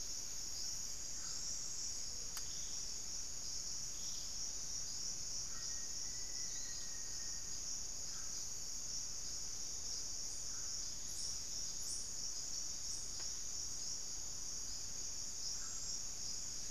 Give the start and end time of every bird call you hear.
0.0s-16.2s: unidentified bird
5.4s-7.6s: Black-faced Antthrush (Formicarius analis)

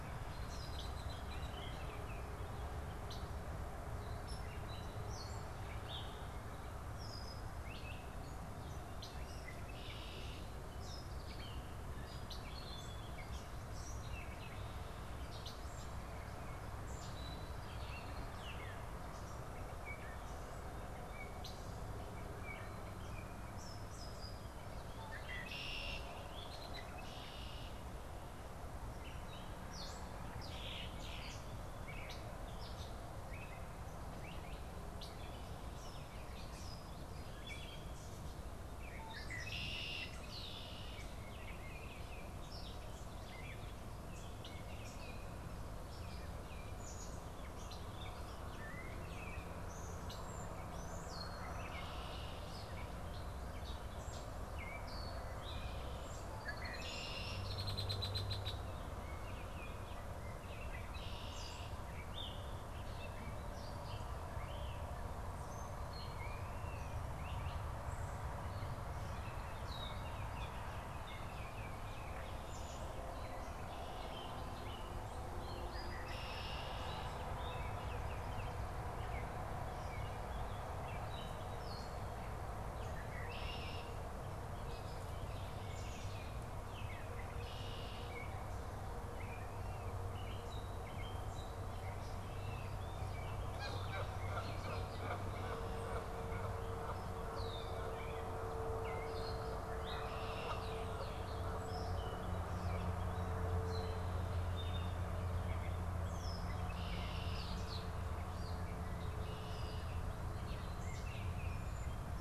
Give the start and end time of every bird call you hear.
0.0s-40.6s: Gray Catbird (Dumetella carolinensis)
0.0s-40.8s: Red-winged Blackbird (Agelaius phoeniceus)
1.1s-2.4s: Baltimore Oriole (Icterus galbula)
41.1s-42.3s: Baltimore Oriole (Icterus galbula)
44.1s-46.8s: Baltimore Oriole (Icterus galbula)
46.6s-99.5s: Gray Catbird (Dumetella carolinensis)
51.3s-52.6s: Red-winged Blackbird (Agelaius phoeniceus)
56.3s-58.7s: Red-winged Blackbird (Agelaius phoeniceus)
60.5s-61.9s: Red-winged Blackbird (Agelaius phoeniceus)
75.4s-77.2s: Red-winged Blackbird (Agelaius phoeniceus)
82.8s-84.1s: Red-winged Blackbird (Agelaius phoeniceus)
87.0s-88.2s: Red-winged Blackbird (Agelaius phoeniceus)
92.9s-96.7s: Canada Goose (Branta canadensis)
97.1s-98.0s: Red-winged Blackbird (Agelaius phoeniceus)
99.6s-100.8s: Red-winged Blackbird (Agelaius phoeniceus)
100.9s-112.2s: Gray Catbird (Dumetella carolinensis)
106.2s-110.2s: Red-winged Blackbird (Agelaius phoeniceus)

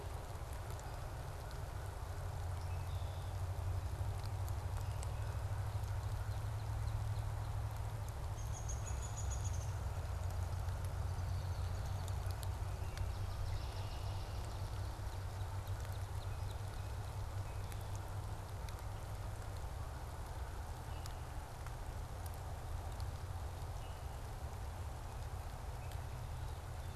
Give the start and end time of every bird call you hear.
2.4s-3.4s: Red-winged Blackbird (Agelaius phoeniceus)
5.7s-8.4s: Northern Cardinal (Cardinalis cardinalis)
8.3s-11.0s: Downy Woodpecker (Dryobates pubescens)
12.9s-15.0s: Swamp Sparrow (Melospiza georgiana)
13.2s-14.4s: Red-winged Blackbird (Agelaius phoeniceus)
14.8s-17.1s: Northern Cardinal (Cardinalis cardinalis)
20.8s-21.4s: Common Grackle (Quiscalus quiscula)
23.7s-24.0s: Common Grackle (Quiscalus quiscula)

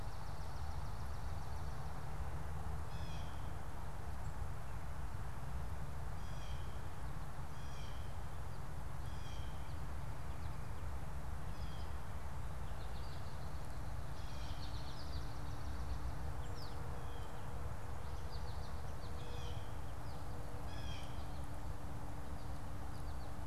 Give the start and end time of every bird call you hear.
0.4s-2.0s: Swamp Sparrow (Melospiza georgiana)
2.8s-12.1s: Blue Jay (Cyanocitta cristata)
12.5s-23.4s: American Goldfinch (Spinus tristis)
14.1s-14.8s: Blue Jay (Cyanocitta cristata)
19.1s-21.3s: Blue Jay (Cyanocitta cristata)

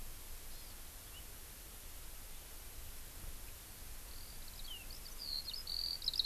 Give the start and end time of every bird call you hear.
0.5s-0.8s: Hawaii Amakihi (Chlorodrepanis virens)
4.1s-6.3s: Eurasian Skylark (Alauda arvensis)

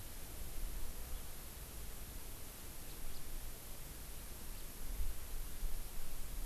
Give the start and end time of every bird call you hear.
2.9s-3.0s: House Finch (Haemorhous mexicanus)

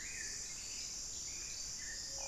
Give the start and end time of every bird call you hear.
0.0s-2.3s: Black-billed Thrush (Turdus ignobilis)

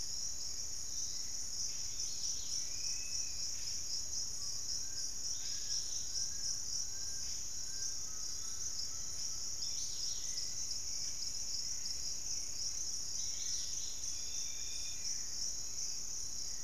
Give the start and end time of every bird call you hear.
0.0s-16.6s: Dusky-capped Greenlet (Pachysylvia hypoxantha)
2.4s-3.7s: Dusky-capped Flycatcher (Myiarchus tuberculifer)
4.3s-8.1s: Fasciated Antshrike (Cymbilaimus lineatus)
6.6s-16.6s: Hauxwell's Thrush (Turdus hauxwelli)
8.0s-9.8s: Undulated Tinamou (Crypturellus undulatus)
10.7s-13.0s: unidentified bird
14.1s-15.4s: Dusky-capped Flycatcher (Myiarchus tuberculifer)

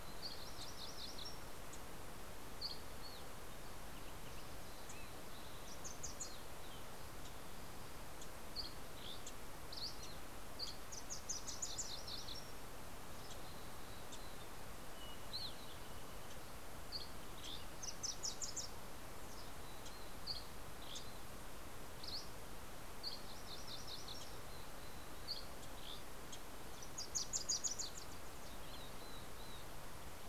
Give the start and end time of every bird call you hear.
0.0s-1.6s: MacGillivray's Warbler (Geothlypis tolmiei)
0.5s-0.8s: Wilson's Warbler (Cardellina pusilla)
1.2s-2.3s: Wilson's Warbler (Cardellina pusilla)
2.0s-3.5s: Dusky Flycatcher (Empidonax oberholseri)
4.2s-6.8s: Wilson's Warbler (Cardellina pusilla)
7.7s-11.1s: Dusky Flycatcher (Empidonax oberholseri)
7.8s-8.5s: Wilson's Warbler (Cardellina pusilla)
8.8s-9.6s: Wilson's Warbler (Cardellina pusilla)
10.1s-14.7s: Wilson's Warbler (Cardellina pusilla)
11.2s-12.5s: MacGillivray's Warbler (Geothlypis tolmiei)
12.7s-14.8s: Mountain Chickadee (Poecile gambeli)
14.9s-17.7s: Dusky Flycatcher (Empidonax oberholseri)
16.7s-19.4s: Wilson's Warbler (Cardellina pusilla)
20.0s-23.2s: Dusky Flycatcher (Empidonax oberholseri)
20.6s-21.1s: Wilson's Warbler (Cardellina pusilla)
23.1s-24.4s: MacGillivray's Warbler (Geothlypis tolmiei)
24.9s-26.1s: Dusky Flycatcher (Empidonax oberholseri)
26.1s-28.8s: Wilson's Warbler (Cardellina pusilla)
28.1s-30.2s: Mountain Chickadee (Poecile gambeli)

